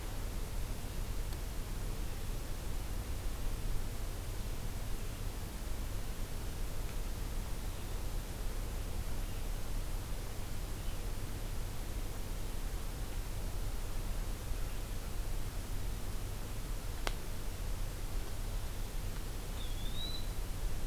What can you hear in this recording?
Eastern Wood-Pewee